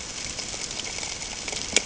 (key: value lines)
label: ambient
recorder: HydroMoth